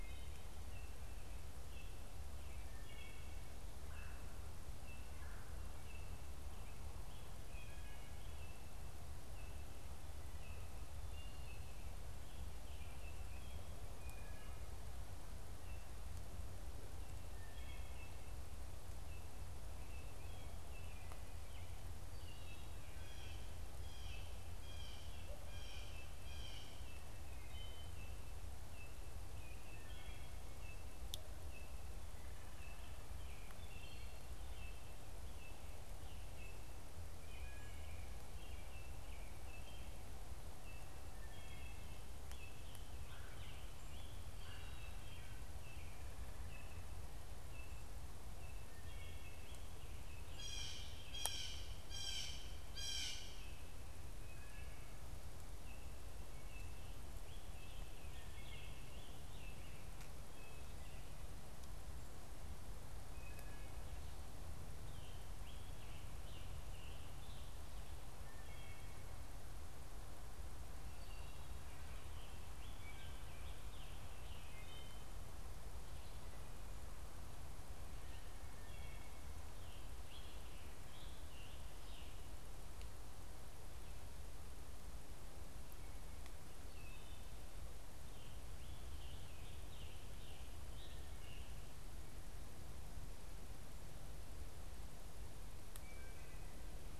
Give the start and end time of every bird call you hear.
[0.00, 18.23] Wood Thrush (Hylocichla mustelina)
[0.00, 56.93] unidentified bird
[22.73, 30.33] Blue Jay (Cyanocitta cristata)
[33.53, 34.33] Wood Thrush (Hylocichla mustelina)
[37.13, 42.13] Wood Thrush (Hylocichla mustelina)
[42.33, 44.23] Scarlet Tanager (Piranga olivacea)
[44.33, 45.13] Wood Thrush (Hylocichla mustelina)
[48.63, 49.63] Wood Thrush (Hylocichla mustelina)
[50.13, 53.53] Blue Jay (Cyanocitta cristata)
[57.03, 59.43] Scarlet Tanager (Piranga olivacea)
[62.83, 63.93] Wood Thrush (Hylocichla mustelina)
[64.53, 67.63] Scarlet Tanager (Piranga olivacea)
[68.13, 71.83] Wood Thrush (Hylocichla mustelina)
[72.63, 75.23] Wood Thrush (Hylocichla mustelina)
[78.43, 79.23] Wood Thrush (Hylocichla mustelina)
[79.53, 82.53] Scarlet Tanager (Piranga olivacea)
[88.13, 91.83] Scarlet Tanager (Piranga olivacea)
[95.73, 96.73] Wood Thrush (Hylocichla mustelina)

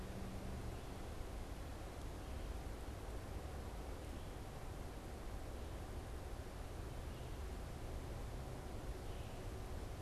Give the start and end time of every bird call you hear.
[0.00, 10.01] Red-eyed Vireo (Vireo olivaceus)

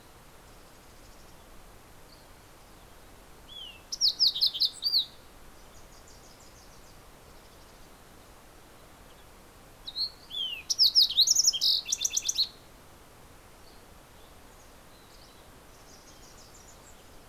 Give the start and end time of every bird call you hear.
[0.00, 1.70] Mountain Chickadee (Poecile gambeli)
[2.90, 5.70] Fox Sparrow (Passerella iliaca)
[5.40, 7.20] Wilson's Warbler (Cardellina pusilla)
[9.90, 13.00] Fox Sparrow (Passerella iliaca)
[13.50, 15.60] Mountain Chickadee (Poecile gambeli)
[15.50, 17.00] Wilson's Warbler (Cardellina pusilla)

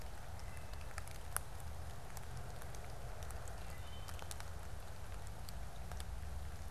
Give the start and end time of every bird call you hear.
[0.00, 4.40] Wood Thrush (Hylocichla mustelina)

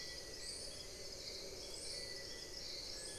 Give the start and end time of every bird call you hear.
[0.00, 3.19] Little Tinamou (Crypturellus soui)

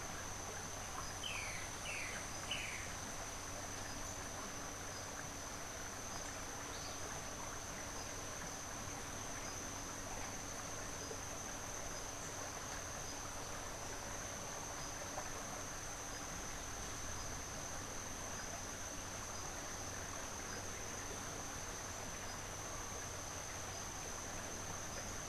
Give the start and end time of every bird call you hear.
[1.10, 2.90] Boat-billed Flycatcher (Megarynchus pitangua)

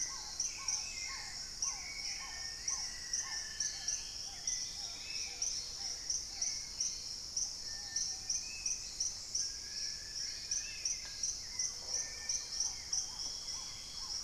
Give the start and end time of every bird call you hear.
[0.00, 2.06] Long-billed Woodcreeper (Nasica longirostris)
[0.00, 6.86] Black-tailed Trogon (Trogon melanurus)
[0.00, 10.96] Spot-winged Antshrike (Pygiptila stellaris)
[0.00, 14.23] Hauxwell's Thrush (Turdus hauxwelli)
[0.56, 11.06] Dusky-capped Greenlet (Pachysylvia hypoxantha)
[2.16, 4.06] Buff-throated Woodcreeper (Xiphorhynchus guttatus)
[2.26, 6.16] Dusky-throated Antshrike (Thamnomanes ardesiacus)
[4.86, 6.16] Gray-fronted Dove (Leptotila rufaxilla)
[7.36, 8.66] Ruddy Pigeon (Patagioenas subvinacea)
[9.16, 11.56] Wing-barred Piprites (Piprites chloris)
[11.36, 14.23] Black-tailed Trogon (Trogon melanurus)
[11.56, 12.16] Red-necked Woodpecker (Campephilus rubricollis)
[11.56, 12.76] Gray-fronted Dove (Leptotila rufaxilla)
[11.86, 13.16] unidentified bird
[11.86, 14.23] Little Tinamou (Crypturellus soui)
[13.46, 14.23] unidentified bird

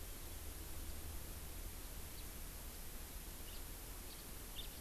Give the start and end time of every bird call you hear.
[2.10, 2.30] House Finch (Haemorhous mexicanus)
[3.50, 3.60] House Finch (Haemorhous mexicanus)
[4.50, 4.70] House Finch (Haemorhous mexicanus)

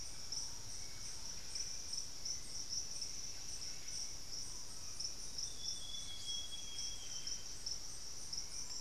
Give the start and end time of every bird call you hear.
[0.00, 8.81] Buff-breasted Wren (Cantorchilus leucotis)
[0.00, 8.81] Hauxwell's Thrush (Turdus hauxwelli)
[4.77, 7.67] Amazonian Grosbeak (Cyanoloxia rothschildii)

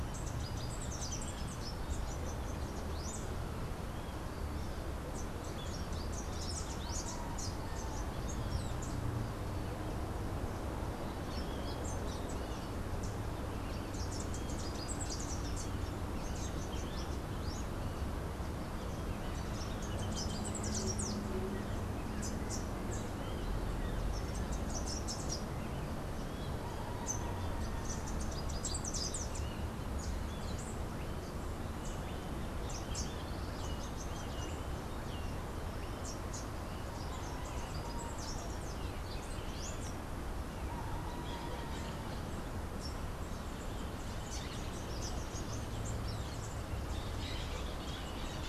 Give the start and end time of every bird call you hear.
[0.00, 29.70] Rufous-capped Warbler (Basileuterus rufifrons)
[32.50, 46.70] Rufous-capped Warbler (Basileuterus rufifrons)

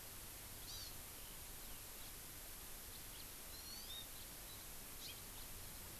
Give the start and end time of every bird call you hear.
[0.64, 0.94] Hawaii Amakihi (Chlorodrepanis virens)
[1.94, 2.14] House Finch (Haemorhous mexicanus)
[3.14, 3.24] House Finch (Haemorhous mexicanus)
[3.44, 4.04] Hawaii Amakihi (Chlorodrepanis virens)
[4.14, 4.24] House Finch (Haemorhous mexicanus)
[4.94, 5.44] House Finch (Haemorhous mexicanus)

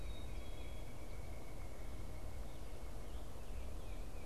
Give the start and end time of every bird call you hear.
[0.00, 0.90] Black-capped Chickadee (Poecile atricapillus)
[0.50, 3.00] unidentified bird

